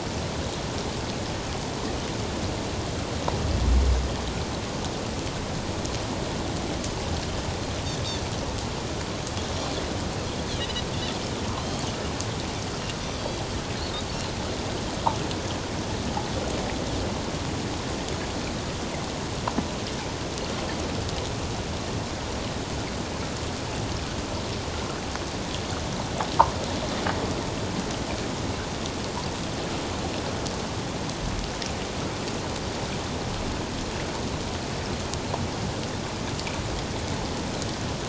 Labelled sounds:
10.5	11.9	Pacific white-sided dolphin, 2.8 to 4.0 kHz
13.1	13.4	Pacific white-sided dolphin, 4.5 to 4.8 kHz

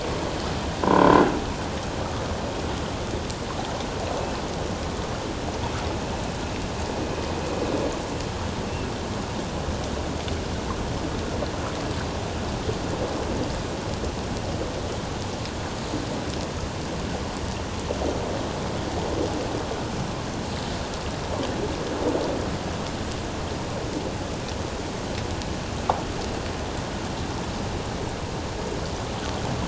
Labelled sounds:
0.8	1.2	croaking sound likely from a nearby submerged object, 0.88 to 1.1 kHz

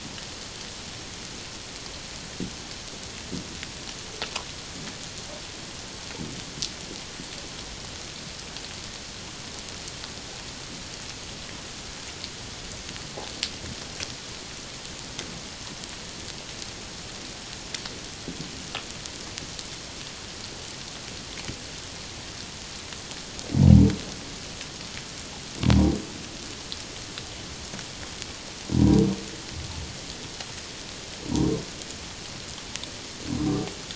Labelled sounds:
28.7	29.0	humpback whale, 0.91 to 1.1 kHz

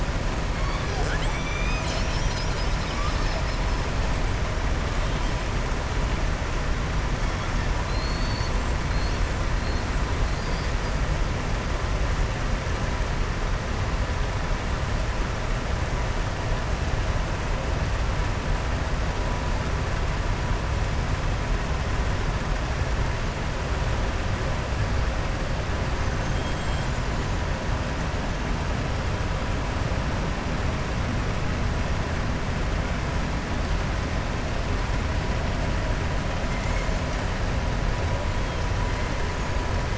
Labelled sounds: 7.8	8.8	killer whale, southern resident, 3.7 to 7.6 kHz
26.0	27.3	killer whale, southern resident, 6.1 to 7.7 kHz

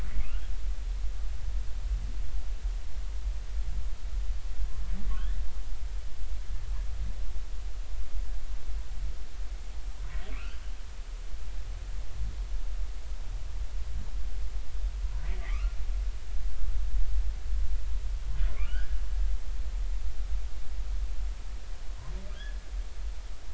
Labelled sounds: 5.1	5.4	humpback whale, 1.4 to 2.0 kHz
10.3	10.6	humpback whale, 1.1 to 3.3 kHz
15.2	15.8	humpback whale, 1.1 to 2.9 kHz
18.6	19.0	humpback whale, 1.3 to 1.7 kHz
22.4	22.6	humpback whale, 1.5 to 1.8 kHz

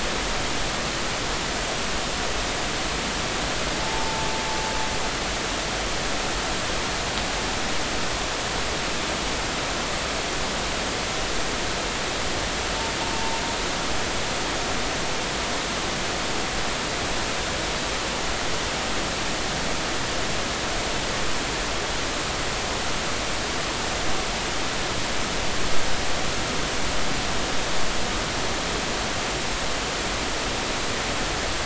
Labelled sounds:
3.8	4.3	humpback whale, 0.83 to 0.93 kHz
13.1	13.4	humpback whale, 0.86 to 0.99 kHz

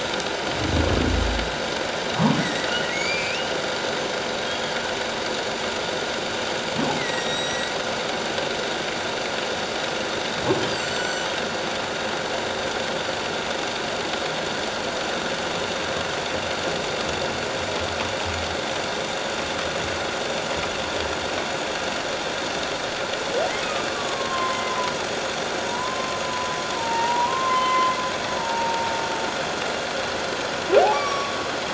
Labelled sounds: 2.4	3.6	humpback whale, 1.8 to 6.9 kHz
4.4	4.7	humpback whale, 3.2 to 3.4 kHz
7.0	7.7	humpback whale, 1.8 to 7.8 kHz
10.7	11.3	humpback whale, 4.3 to 8.0 kHz
23.9	24.9	humpback whale, 0.94 to 1.2 kHz
25.6	28.9	humpback whale, 0.84 to 3.1 kHz
30.9	31.3	humpback whale, 1.1 to 2.4 kHz

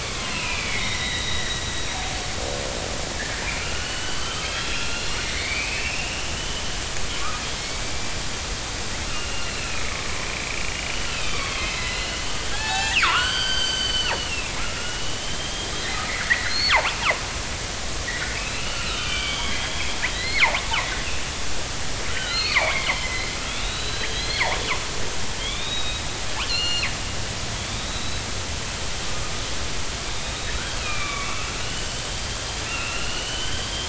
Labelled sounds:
0.0	1.7	killer whale, northern resident, 0.93 to 5.7 kHz
3.4	6.6	killer whale, northern resident, 1.1 to 4.6 kHz
7.2	8.1	killer whale, northern resident, 1.1 to 2.4 kHz
9.1	15.7	killer whale, northern resident, 0.80 to 7.4 kHz
16.2	16.7	killer whale, northern resident, 1.3 to 4.5 kHz
18.1	20.5	killer whale, northern resident, 1.2 to 4.9 kHz
22.1	24.6	killer whale, northern resident, 0.80 to 4.6 kHz
25.4	26.0	killer whale, northern resident, 2.1 to 3.9 kHz
26.4	26.9	killer whale, northern resident, 2.0 to 7.2 kHz
27.6	28.2	killer whale, northern resident, 3.2 to 4.1 kHz
30.2	32.1	killer whale, northern resident, 1.0 to 3.9 kHz
32.7	33.8	killer whale, northern resident, 2.5 to 3.4 kHz

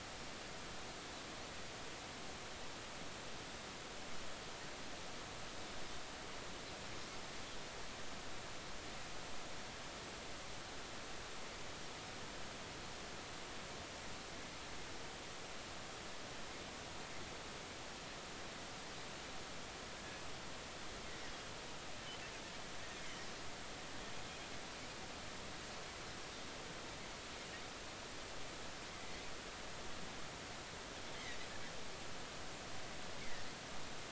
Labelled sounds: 33.2	33.5	Pacific white-sided dolphin, 1.8 to 2.3 kHz

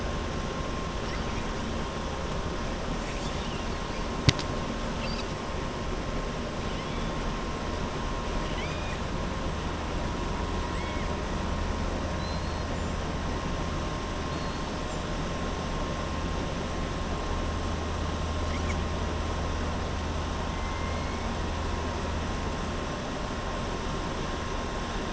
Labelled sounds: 8.4	9.0	killer whale, southern resident, 1.8 to 4.9 kHz
10.7	11.1	killer whale, southern resident, 1.8 to 3.9 kHz
12.1	12.7	killer whale, southern resident, 3.9 to 4.4 kHz
14.2	14.7	killer whale, southern resident, 3.6 to 5.1 kHz

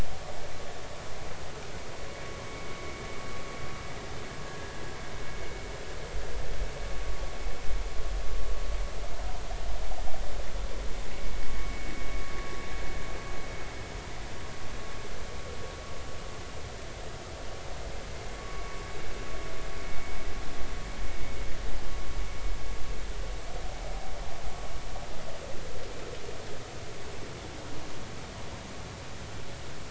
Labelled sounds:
11.6	11.9	vessel noise, 2.2 to 2.3 kHz
18.4	18.8	vessel noise, 1.1 to 2.3 kHz

